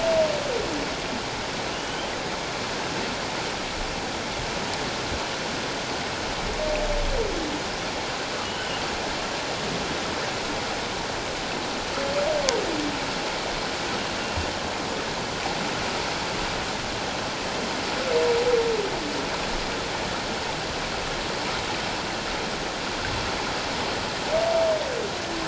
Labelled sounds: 1.7	2.1	humpback whale, 2.7 to 3.2 kHz
8.4	8.8	humpback whale, 2.8 to 3.1 kHz
14.2	14.5	humpback whale, 2.7 to 2.9 kHz

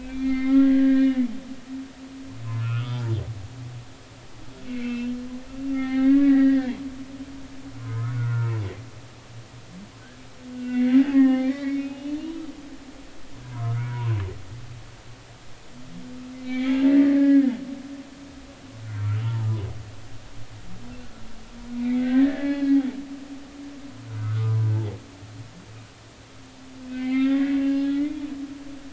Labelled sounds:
0.0	1.3	humpback whale, 1.0 to 4.5 kHz
2.6	3.0	humpback whale, 0.99 to 5.0 kHz
4.7	5.2	humpback whale, 2.0 to 3.2 kHz
5.7	6.7	humpback whale, 0.80 to 3.0 kHz
7.8	8.5	humpback whale, 0.96 to 1.8 kHz
10.5	12.2	humpback whale, 0.80 to 3.7 kHz
13.5	14.2	humpback whale, 0.90 to 2.3 kHz
16.4	17.5	humpback whale, 0.83 to 4.2 kHz
18.8	19.5	humpback whale, 0.86 to 1.5 kHz
21.7	22.8	humpback whale, 0.80 to 4.4 kHz
24.7	25.7	humpback whale, 0.80 to 1.3 kHz
26.9	28.2	humpback whale, 0.80 to 4.3 kHz

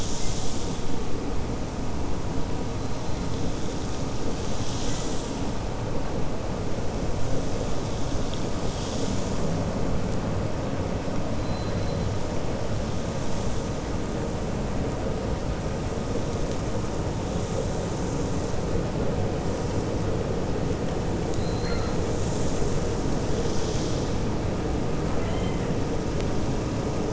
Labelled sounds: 11.4	12.0	killer whale, 4.0 to 4.7 kHz
21.3	22.0	killer whale, 1.3 to 4.7 kHz
25.0	25.6	killer whale, 0.68 to 3.2 kHz

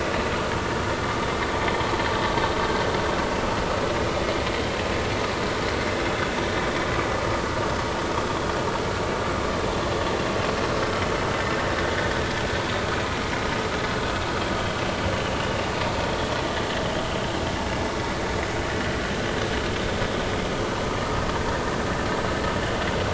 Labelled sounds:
6.0	6.3	vessel noise, 3.4 to 3.6 kHz

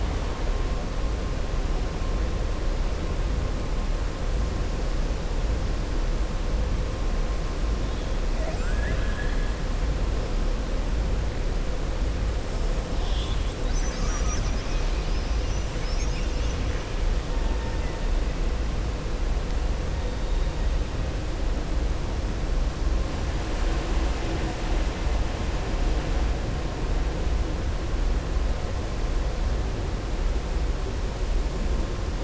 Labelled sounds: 8.3	9.5	killer whale, southern resident, 0.63 to 3.3 kHz
13.7	14.4	killer whale, southern resident, 0.74 to 1.9 kHz
17.5	18.0	killer whale, southern resident, 0.88 to 2.8 kHz

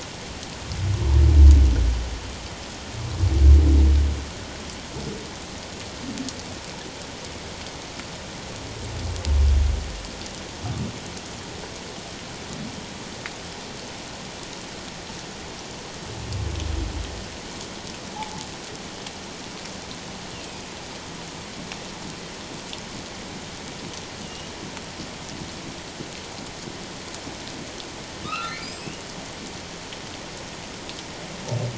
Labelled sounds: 28.2	29.0	humpback whale, 1.0 to 5.5 kHz

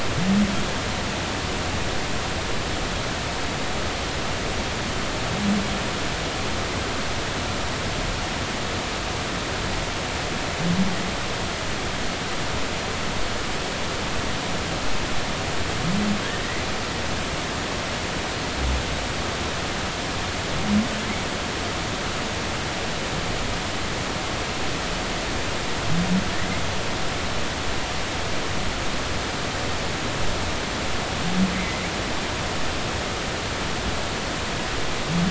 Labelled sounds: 31.5	31.8	humpback whale, 2.0 to 2.1 kHz

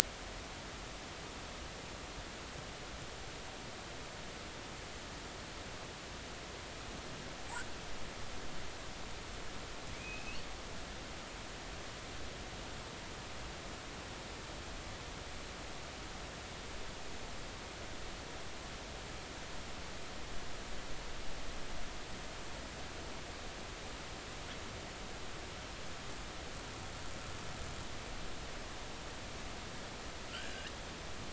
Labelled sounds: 11.0	11.4	killer whale, northern resident, 2.4 to 3.0 kHz
30.3	30.7	killer whale, northern resident, 1.3 to 4.9 kHz

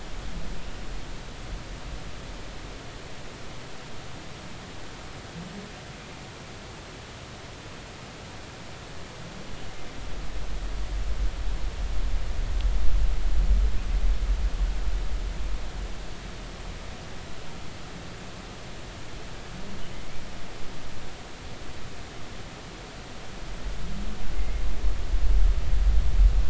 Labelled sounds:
24.4	24.6	humpback whale, 2.0 to 2.2 kHz

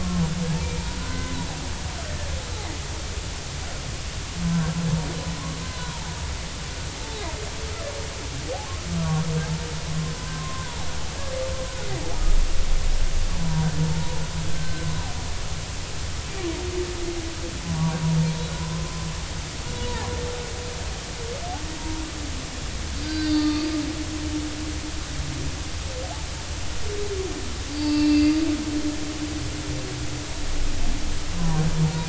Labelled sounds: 0.0	2.3	humpback whale, 0.93 to 2.1 kHz
7.0	7.3	humpback whale, 0.80 to 0.93 kHz
10.1	10.7	humpback whale, 0.99 to 1.1 kHz
11.7	11.9	humpback whale, 1.4 to 1.5 kHz
13.4	13.7	humpback whale, 0.90 to 1.0 kHz
14.5	14.8	humpback whale, 1.5 to 1.6 kHz
17.7	18.0	humpback whale, 0.90 to 1.2 kHz
18.6	18.8	humpback whale, 0.96 to 1.1 kHz
23.0	23.6	humpback whale, 1.5 to 4.7 kHz
24.3	24.7	humpback whale, 1.1 to 1.2 kHz
27.7	28.4	humpback whale, 0.86 to 4.9 kHz
31.4	31.6	humpback whale, 0.90 to 1.2 kHz

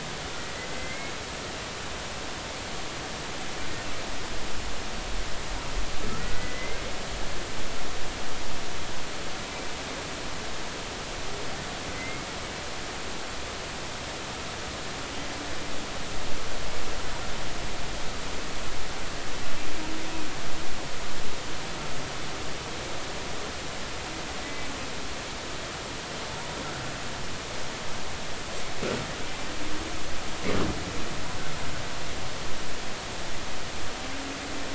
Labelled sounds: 0.5	1.1	humpback whale, 2.0 to 2.2 kHz
6.1	6.8	humpback whale, 1.2 to 2.2 kHz
11.9	12.3	humpback whale, 2.0 to 2.2 kHz
24.4	24.7	humpback whale, 1.9 to 2.0 kHz

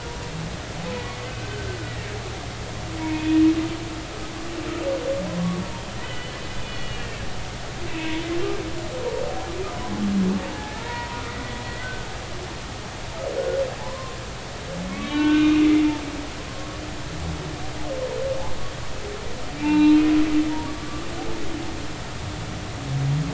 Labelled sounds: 0.0	0.3	humpback whale, 0.90 to 1.0 kHz
3.0	3.4	humpback whale, 0.90 to 2.6 kHz
6.0	7.2	humpback whale, 1.9 to 3.5 kHz
10.4	12.1	humpback whale, 0.80 to 2.0 kHz
13.8	14.2	humpback whale, 0.83 to 1.2 kHz
14.9	15.7	humpback whale, 1.1 to 3.7 kHz
19.6	21.0	humpback whale, 0.83 to 4.1 kHz

